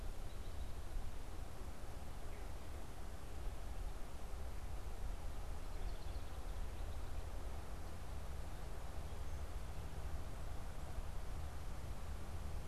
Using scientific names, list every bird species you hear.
Troglodytes aedon